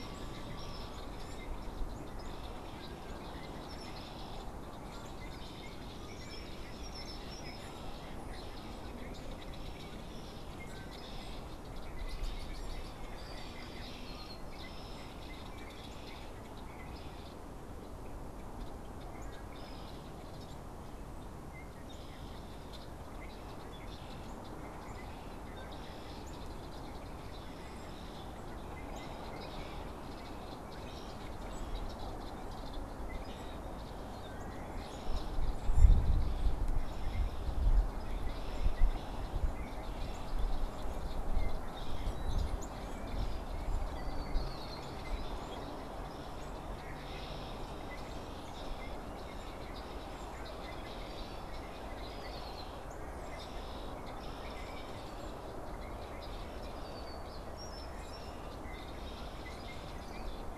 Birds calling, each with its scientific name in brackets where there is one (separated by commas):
Canada Goose (Branta canadensis), unidentified bird, Red-winged Blackbird (Agelaius phoeniceus)